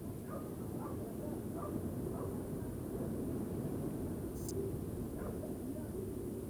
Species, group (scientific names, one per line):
Poecilimon macedonicus
Orthoptera